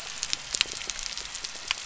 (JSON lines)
{"label": "anthrophony, boat engine", "recorder": "SoundTrap 300"}